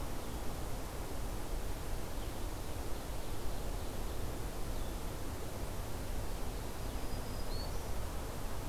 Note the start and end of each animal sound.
[0.00, 8.69] Blue-headed Vireo (Vireo solitarius)
[2.43, 4.28] Ovenbird (Seiurus aurocapilla)
[6.73, 7.96] Black-throated Green Warbler (Setophaga virens)

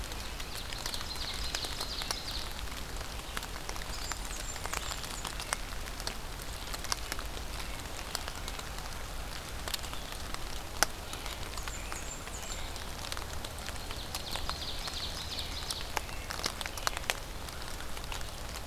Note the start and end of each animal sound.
[0.27, 2.58] Ovenbird (Seiurus aurocapilla)
[3.79, 5.42] Blackburnian Warbler (Setophaga fusca)
[11.08, 12.73] Blackburnian Warbler (Setophaga fusca)
[11.56, 12.76] American Robin (Turdus migratorius)
[13.52, 16.05] Ovenbird (Seiurus aurocapilla)
[14.54, 17.06] American Robin (Turdus migratorius)

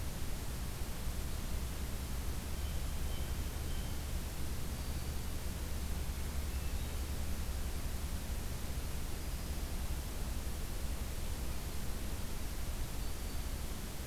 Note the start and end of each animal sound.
[2.42, 4.05] Blue Jay (Cyanocitta cristata)
[4.63, 5.46] Black-throated Green Warbler (Setophaga virens)
[5.93, 7.33] Hermit Thrush (Catharus guttatus)
[9.06, 9.75] Black-throated Green Warbler (Setophaga virens)
[12.80, 13.58] Black-throated Green Warbler (Setophaga virens)

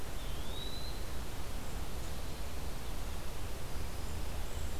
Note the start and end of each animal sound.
[0.00, 1.14] Eastern Wood-Pewee (Contopus virens)

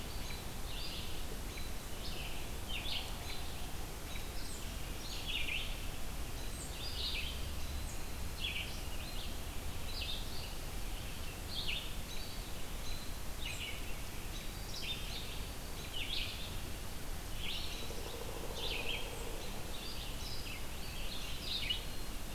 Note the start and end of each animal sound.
[0.00, 0.78] Black-capped Chickadee (Poecile atricapillus)
[0.00, 4.58] American Robin (Turdus migratorius)
[0.00, 4.61] Red-eyed Vireo (Vireo olivaceus)
[4.92, 22.34] Red-eyed Vireo (Vireo olivaceus)
[6.44, 13.61] Black-capped Chickadee (Poecile atricapillus)
[11.94, 13.15] Eastern Wood-Pewee (Contopus virens)
[17.89, 19.52] Pileated Woodpecker (Dryocopus pileatus)
[21.71, 22.34] Black-capped Chickadee (Poecile atricapillus)

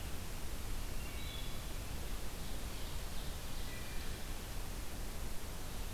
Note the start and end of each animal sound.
[0.78, 1.61] Wood Thrush (Hylocichla mustelina)
[2.12, 4.48] Ovenbird (Seiurus aurocapilla)
[3.58, 4.21] Wood Thrush (Hylocichla mustelina)

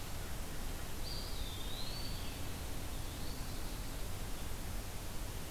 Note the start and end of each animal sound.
[0.93, 2.27] Eastern Wood-Pewee (Contopus virens)
[1.24, 2.81] Veery (Catharus fuscescens)
[2.96, 3.54] Eastern Wood-Pewee (Contopus virens)

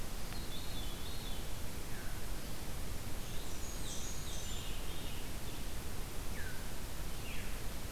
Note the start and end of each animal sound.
[0.14, 1.54] Veery (Catharus fuscescens)
[3.35, 4.63] Blackburnian Warbler (Setophaga fusca)
[3.67, 5.35] Veery (Catharus fuscescens)
[6.30, 7.72] Veery (Catharus fuscescens)

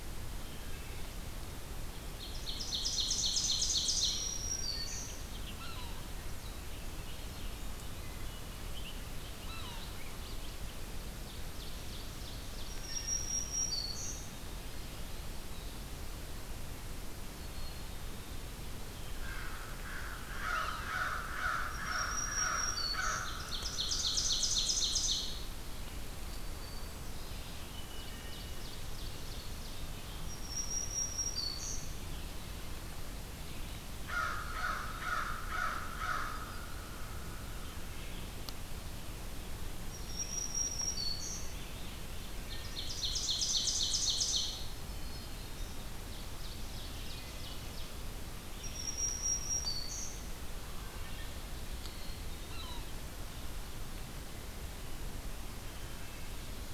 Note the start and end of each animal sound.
[0.00, 27.75] Red-eyed Vireo (Vireo olivaceus)
[0.43, 1.24] Wood Thrush (Hylocichla mustelina)
[2.06, 4.36] Ovenbird (Seiurus aurocapilla)
[3.80, 5.24] Black-throated Green Warbler (Setophaga virens)
[4.38, 5.07] Wood Thrush (Hylocichla mustelina)
[5.42, 6.09] Yellow-bellied Sapsucker (Sphyrapicus varius)
[6.16, 11.02] Bobolink (Dolichonyx oryzivorus)
[7.92, 8.72] Wood Thrush (Hylocichla mustelina)
[9.35, 9.77] Yellow-bellied Sapsucker (Sphyrapicus varius)
[11.23, 13.14] Ovenbird (Seiurus aurocapilla)
[12.57, 14.22] Black-throated Green Warbler (Setophaga virens)
[13.94, 15.35] White-throated Sparrow (Zonotrichia albicollis)
[17.30, 19.41] White-throated Sparrow (Zonotrichia albicollis)
[19.20, 23.44] American Crow (Corvus brachyrhynchos)
[20.42, 20.90] Yellow-bellied Sapsucker (Sphyrapicus varius)
[21.59, 23.35] Black-throated Green Warbler (Setophaga virens)
[23.25, 25.51] Ovenbird (Seiurus aurocapilla)
[26.40, 28.77] White-throated Sparrow (Zonotrichia albicollis)
[27.84, 29.93] Ovenbird (Seiurus aurocapilla)
[30.06, 31.92] Black-throated Green Warbler (Setophaga virens)
[33.85, 36.77] American Crow (Corvus brachyrhynchos)
[39.72, 41.68] Black-throated Green Warbler (Setophaga virens)
[42.32, 44.75] Ovenbird (Seiurus aurocapilla)
[44.77, 45.93] Black-throated Green Warbler (Setophaga virens)
[45.77, 47.91] Ovenbird (Seiurus aurocapilla)
[48.55, 50.31] Black-throated Green Warbler (Setophaga virens)
[50.68, 51.49] Wood Thrush (Hylocichla mustelina)
[52.33, 52.85] Yellow-bellied Sapsucker (Sphyrapicus varius)
[55.66, 56.39] Wood Thrush (Hylocichla mustelina)

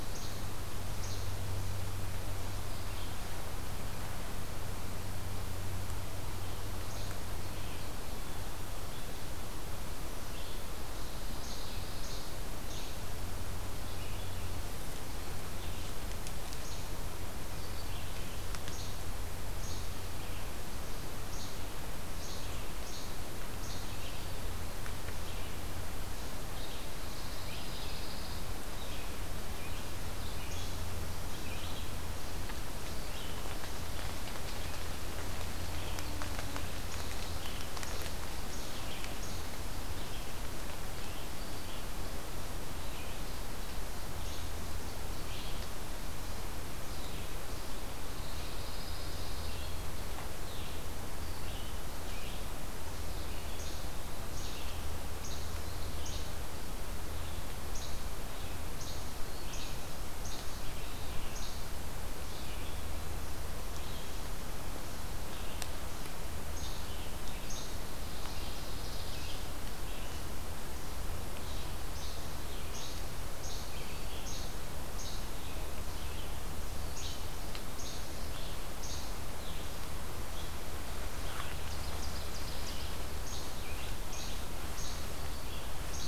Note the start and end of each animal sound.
[0.00, 1.49] Least Flycatcher (Empidonax minimus)
[0.00, 86.08] Red-eyed Vireo (Vireo olivaceus)
[6.75, 7.09] Least Flycatcher (Empidonax minimus)
[10.94, 12.46] Pine Warbler (Setophaga pinus)
[11.21, 13.35] Least Flycatcher (Empidonax minimus)
[16.49, 16.82] Least Flycatcher (Empidonax minimus)
[18.59, 24.32] Least Flycatcher (Empidonax minimus)
[27.11, 28.56] Pine Warbler (Setophaga pinus)
[30.43, 30.75] Least Flycatcher (Empidonax minimus)
[36.73, 39.77] Least Flycatcher (Empidonax minimus)
[44.17, 44.51] Least Flycatcher (Empidonax minimus)
[47.98, 49.70] Pine Warbler (Setophaga pinus)
[53.42, 61.83] Least Flycatcher (Empidonax minimus)
[66.32, 67.92] Least Flycatcher (Empidonax minimus)
[67.89, 69.59] Pine Warbler (Setophaga pinus)
[71.66, 79.42] Least Flycatcher (Empidonax minimus)
[81.29, 83.22] Ovenbird (Seiurus aurocapilla)
[83.16, 86.08] Least Flycatcher (Empidonax minimus)

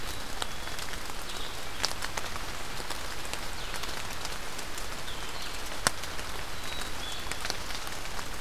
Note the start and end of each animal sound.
[0.00, 0.87] Black-capped Chickadee (Poecile atricapillus)
[0.00, 7.49] Blue-headed Vireo (Vireo solitarius)
[6.50, 7.43] Black-capped Chickadee (Poecile atricapillus)

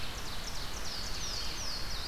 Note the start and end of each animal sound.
[0.00, 1.16] Ovenbird (Seiurus aurocapilla)
[0.00, 2.07] Red-eyed Vireo (Vireo olivaceus)
[1.05, 2.07] Louisiana Waterthrush (Parkesia motacilla)

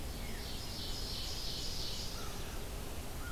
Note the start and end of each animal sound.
[0.00, 2.66] Ovenbird (Seiurus aurocapilla)
[0.00, 3.32] Red-eyed Vireo (Vireo olivaceus)
[0.06, 0.57] Veery (Catharus fuscescens)

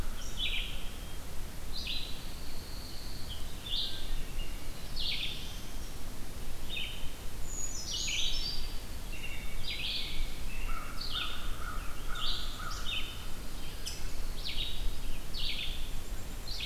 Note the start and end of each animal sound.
[0.06, 16.65] Red-eyed Vireo (Vireo olivaceus)
[1.75, 3.44] Pine Warbler (Setophaga pinus)
[3.77, 4.31] Wood Thrush (Hylocichla mustelina)
[4.27, 5.83] Black-throated Blue Warbler (Setophaga caerulescens)
[7.15, 9.21] Brown Creeper (Certhia americana)
[9.08, 10.62] American Robin (Turdus migratorius)
[10.43, 13.81] American Crow (Corvus brachyrhynchos)
[11.31, 12.91] Scarlet Tanager (Piranga olivacea)
[12.09, 12.86] Black-capped Chickadee (Poecile atricapillus)
[13.80, 14.07] Rose-breasted Grosbeak (Pheucticus ludovicianus)
[15.84, 16.65] Black-capped Chickadee (Poecile atricapillus)

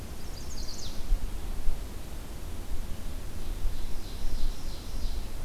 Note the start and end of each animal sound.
[0.00, 1.24] Chestnut-sided Warbler (Setophaga pensylvanica)
[3.12, 5.44] Ovenbird (Seiurus aurocapilla)

